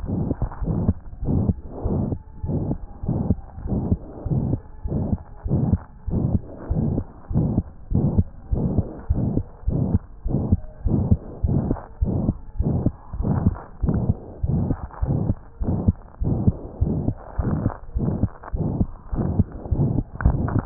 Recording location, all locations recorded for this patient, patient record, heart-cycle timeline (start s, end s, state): aortic valve (AV)
aortic valve (AV)+pulmonary valve (PV)+tricuspid valve (TV)+mitral valve (MV)
#Age: Child
#Sex: Male
#Height: 121.0 cm
#Weight: 23.0 kg
#Pregnancy status: False
#Murmur: Present
#Murmur locations: aortic valve (AV)+mitral valve (MV)+pulmonary valve (PV)+tricuspid valve (TV)
#Most audible location: tricuspid valve (TV)
#Systolic murmur timing: Holosystolic
#Systolic murmur shape: Diamond
#Systolic murmur grading: III/VI or higher
#Systolic murmur pitch: High
#Systolic murmur quality: Harsh
#Diastolic murmur timing: nan
#Diastolic murmur shape: nan
#Diastolic murmur grading: nan
#Diastolic murmur pitch: nan
#Diastolic murmur quality: nan
#Outcome: Abnormal
#Campaign: 2015 screening campaign
0.00	0.96	unannotated
0.96	1.20	diastole
1.20	1.29	S1
1.29	1.48	systole
1.48	1.56	S2
1.56	1.83	diastole
1.83	1.90	S1
1.90	2.08	systole
2.08	2.20	S2
2.20	2.42	diastole
2.42	2.49	S1
2.49	2.68	systole
2.68	2.78	S2
2.78	3.01	diastole
3.01	3.13	S1
3.13	3.26	systole
3.26	3.38	S2
3.38	3.63	diastole
3.63	3.71	S1
3.71	3.90	systole
3.90	4.00	S2
4.00	4.24	diastole
4.24	4.34	S1
4.34	4.50	systole
4.50	4.60	S2
4.60	4.83	diastole
4.83	4.92	S1
4.92	5.10	systole
5.10	5.20	S2
5.20	5.44	diastole
5.44	5.52	S1
5.52	5.70	systole
5.70	5.80	S2
5.80	6.05	diastole
6.05	6.14	S1
6.14	6.30	systole
6.30	6.42	S2
6.42	6.68	diastole
6.68	6.76	S1
6.76	6.96	systole
6.96	7.04	S2
7.04	7.28	diastole
7.28	7.38	S1
7.38	7.56	systole
7.56	7.66	S2
7.66	7.89	diastole
7.89	7.98	S1
7.98	8.16	systole
8.16	8.28	S2
8.28	8.50	diastole
8.50	8.58	S1
8.58	8.76	systole
8.76	8.88	S2
8.88	9.07	diastole
9.07	9.16	S1
9.16	9.34	systole
9.34	9.44	S2
9.44	9.64	diastole
9.64	9.73	S1
9.73	9.91	systole
9.91	9.99	S2
9.99	10.23	diastole
10.23	10.33	S1
10.33	10.50	systole
10.50	10.62	S2
10.62	10.82	diastole
10.82	10.92	S1
10.92	11.08	systole
11.08	11.20	S2
11.20	11.42	diastole
11.42	11.51	S1
11.51	11.68	systole
11.68	11.78	S2
11.78	11.98	diastole
11.98	12.08	S1
12.08	12.25	systole
12.25	12.34	S2
12.34	12.58	diastole
12.58	12.65	S1
12.65	12.84	systole
12.84	12.94	S2
12.94	13.16	diastole
13.16	13.26	S1
13.26	13.44	systole
13.44	13.52	S2
13.52	13.81	diastole
13.81	13.88	S1
13.88	14.07	systole
14.07	14.14	S2
14.14	14.41	diastole
14.41	14.50	S1
14.50	14.68	systole
14.68	14.78	S2
14.78	14.99	diastole
14.99	15.09	S1
15.09	15.28	systole
15.28	15.36	S2
15.36	15.59	diastole
15.59	20.66	unannotated